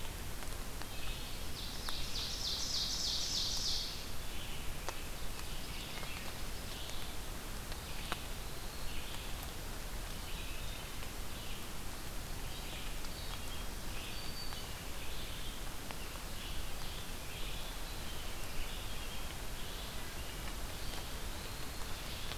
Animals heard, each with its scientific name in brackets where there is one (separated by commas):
Wood Thrush (Hylocichla mustelina), Black-throated Green Warbler (Setophaga virens), Ovenbird (Seiurus aurocapilla), Eastern Wood-Pewee (Contopus virens), Red-eyed Vireo (Vireo olivaceus)